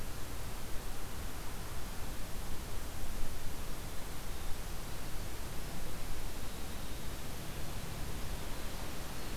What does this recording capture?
Winter Wren